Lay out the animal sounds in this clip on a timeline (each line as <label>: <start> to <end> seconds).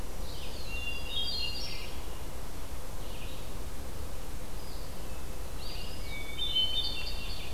Red-eyed Vireo (Vireo olivaceus): 0.0 to 7.5 seconds
Hermit Thrush (Catharus guttatus): 0.4 to 2.1 seconds
Hermit Thrush (Catharus guttatus): 5.9 to 7.5 seconds